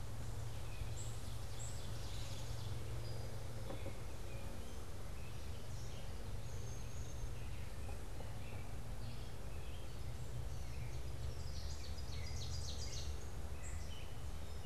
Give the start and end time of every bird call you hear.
[0.00, 14.65] Gray Catbird (Dumetella carolinensis)
[0.82, 1.92] unidentified bird
[1.22, 3.02] Ovenbird (Seiurus aurocapilla)
[11.12, 13.42] Ovenbird (Seiurus aurocapilla)

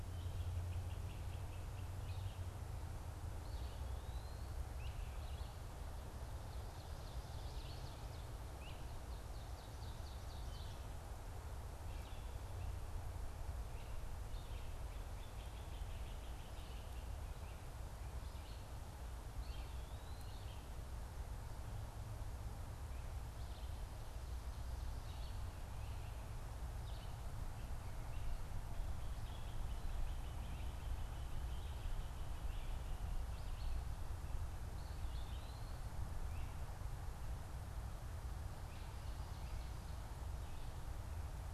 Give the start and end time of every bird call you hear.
[0.00, 2.70] Great Crested Flycatcher (Myiarchus crinitus)
[3.30, 4.40] Eastern Wood-Pewee (Contopus virens)
[4.60, 5.10] Great Crested Flycatcher (Myiarchus crinitus)
[6.80, 8.50] Ovenbird (Seiurus aurocapilla)
[9.00, 10.90] Ovenbird (Seiurus aurocapilla)
[11.70, 41.54] Red-eyed Vireo (Vireo olivaceus)
[14.90, 17.50] Great Crested Flycatcher (Myiarchus crinitus)
[19.30, 20.70] Eastern Wood-Pewee (Contopus virens)
[29.30, 32.70] Great Crested Flycatcher (Myiarchus crinitus)
[34.60, 35.80] Eastern Wood-Pewee (Contopus virens)

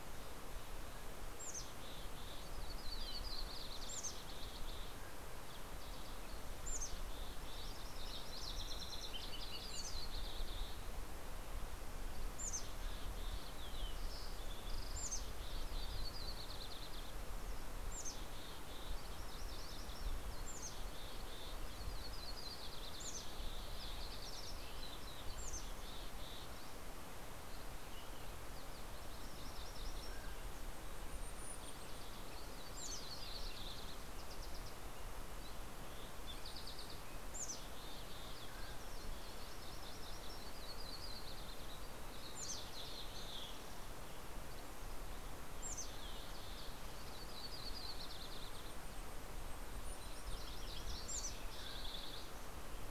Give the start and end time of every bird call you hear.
[0.80, 2.70] Mountain Chickadee (Poecile gambeli)
[2.60, 5.40] Yellow-rumped Warbler (Setophaga coronata)
[4.00, 7.90] Mountain Chickadee (Poecile gambeli)
[5.80, 10.20] Yellow-rumped Warbler (Setophaga coronata)
[9.60, 11.50] Mountain Chickadee (Poecile gambeli)
[12.00, 13.80] Mountain Chickadee (Poecile gambeli)
[12.20, 15.60] Green-tailed Towhee (Pipilo chlorurus)
[12.50, 13.10] Mountain Quail (Oreortyx pictus)
[14.70, 16.00] Mountain Chickadee (Poecile gambeli)
[15.40, 17.80] Yellow-rumped Warbler (Setophaga coronata)
[17.40, 19.30] Mountain Chickadee (Poecile gambeli)
[18.40, 21.30] MacGillivray's Warbler (Geothlypis tolmiei)
[20.20, 21.90] Mountain Chickadee (Poecile gambeli)
[22.80, 27.00] Mountain Chickadee (Poecile gambeli)
[27.10, 27.90] Dusky Flycatcher (Empidonax oberholseri)
[28.00, 30.80] MacGillivray's Warbler (Geothlypis tolmiei)
[29.70, 31.00] Mountain Quail (Oreortyx pictus)
[29.80, 33.90] Mountain Chickadee (Poecile gambeli)
[31.20, 35.60] Green-tailed Towhee (Pipilo chlorurus)
[35.30, 36.30] Dusky Flycatcher (Empidonax oberholseri)
[35.40, 38.60] Mountain Chickadee (Poecile gambeli)
[38.30, 39.20] Mountain Quail (Oreortyx pictus)
[39.20, 42.10] Yellow-rumped Warbler (Setophaga coronata)
[42.40, 43.50] Mountain Chickadee (Poecile gambeli)
[44.10, 45.50] Dusky Flycatcher (Empidonax oberholseri)
[45.30, 46.80] Mountain Chickadee (Poecile gambeli)
[46.50, 48.90] Yellow-rumped Warbler (Setophaga coronata)
[47.70, 50.60] Mountain Chickadee (Poecile gambeli)
[49.80, 51.60] MacGillivray's Warbler (Geothlypis tolmiei)
[51.10, 52.20] Mountain Chickadee (Poecile gambeli)

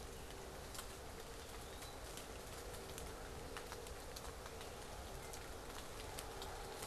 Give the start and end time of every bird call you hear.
[1.10, 2.10] Eastern Wood-Pewee (Contopus virens)

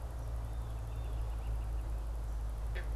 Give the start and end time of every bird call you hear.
[0.51, 2.01] American Robin (Turdus migratorius)
[0.71, 1.31] Blue Jay (Cyanocitta cristata)

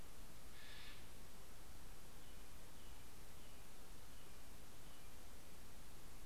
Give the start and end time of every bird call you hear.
[0.00, 1.20] Steller's Jay (Cyanocitta stelleri)
[1.80, 6.20] American Robin (Turdus migratorius)

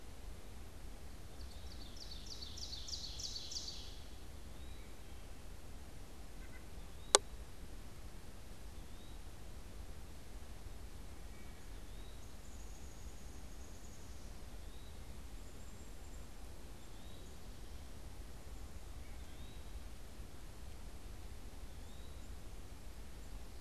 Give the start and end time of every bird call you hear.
[1.20, 4.10] Ovenbird (Seiurus aurocapilla)
[1.30, 2.00] Eastern Wood-Pewee (Contopus virens)
[4.30, 4.90] Eastern Wood-Pewee (Contopus virens)
[6.30, 6.70] White-breasted Nuthatch (Sitta carolinensis)
[6.80, 9.30] Eastern Wood-Pewee (Contopus virens)
[11.10, 11.90] Wood Thrush (Hylocichla mustelina)
[11.70, 19.80] Eastern Wood-Pewee (Contopus virens)
[12.10, 17.50] unidentified bird
[21.60, 22.40] Eastern Wood-Pewee (Contopus virens)

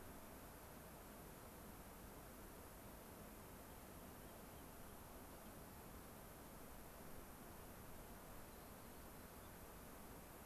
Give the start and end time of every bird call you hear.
[3.44, 4.74] Rock Wren (Salpinctes obsoletus)

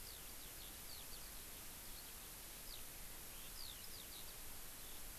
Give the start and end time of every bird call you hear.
[0.00, 5.18] Eurasian Skylark (Alauda arvensis)

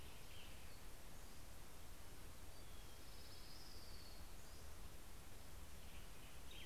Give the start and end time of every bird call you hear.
[0.00, 1.31] Hermit Warbler (Setophaga occidentalis)
[0.00, 6.65] Western Tanager (Piranga ludoviciana)
[2.01, 5.31] Orange-crowned Warbler (Leiothlypis celata)

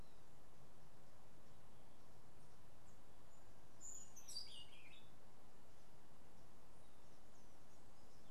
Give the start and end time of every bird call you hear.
[3.52, 4.92] Orange-billed Nightingale-Thrush (Catharus aurantiirostris)

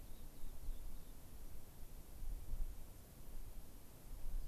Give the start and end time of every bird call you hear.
[0.00, 1.20] Rock Wren (Salpinctes obsoletus)

